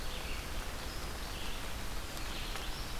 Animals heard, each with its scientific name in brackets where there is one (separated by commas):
Black-throated Green Warbler (Setophaga virens), Eastern Wood-Pewee (Contopus virens), Red-eyed Vireo (Vireo olivaceus)